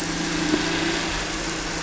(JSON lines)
{"label": "anthrophony, boat engine", "recorder": "SoundTrap 300"}